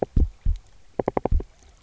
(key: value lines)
label: biophony, knock
recorder: SoundTrap 300